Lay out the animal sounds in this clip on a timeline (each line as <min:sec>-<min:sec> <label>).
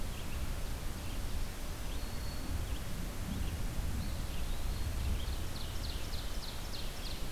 0:00.0-0:07.3 Red-eyed Vireo (Vireo olivaceus)
0:01.4-0:03.0 Black-throated Green Warbler (Setophaga virens)
0:03.8-0:05.0 Eastern Wood-Pewee (Contopus virens)
0:04.8-0:07.3 Ovenbird (Seiurus aurocapilla)